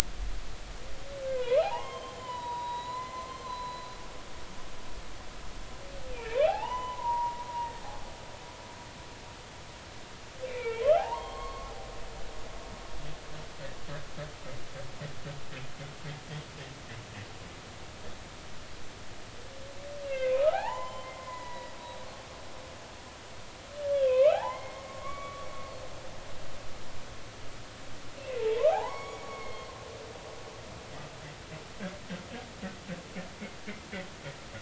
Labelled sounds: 1.2	4.0	humpback whale, 0.80 to 4.1 kHz
6.1	7.7	humpback whale, 0.80 to 3.1 kHz
10.5	11.7	humpback whale, 0.80 to 2.5 kHz
20.0	21.7	humpback whale, 0.80 to 7.2 kHz
23.9	25.5	humpback whale, 0.80 to 2.8 kHz
26.0	26.4	humpback whale, 2.1 to 2.3 kHz
28.2	29.7	humpback whale, 0.80 to 6.8 kHz

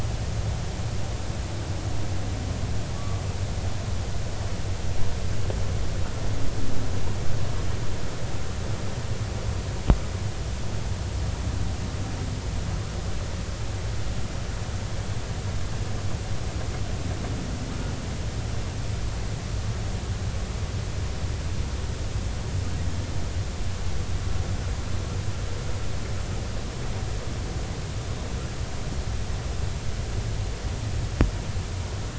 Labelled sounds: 2.9	3.2	humpback whale, 1.1 to 1.2 kHz

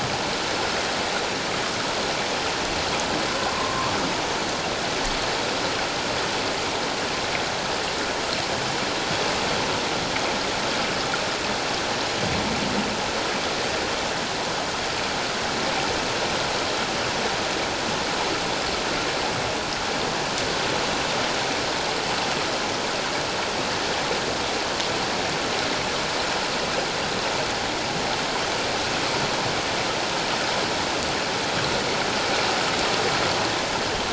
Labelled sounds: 3.5	3.9	humpback whale, 1.0 to 1.2 kHz

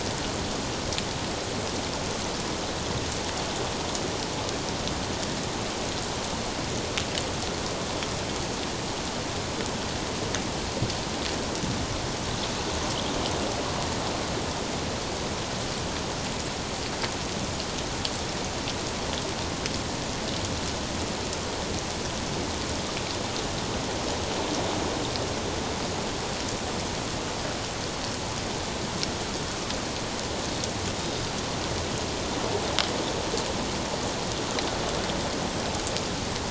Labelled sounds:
31.0	31.3	Pacific white-sided dolphin, 3.5 to 3.8 kHz

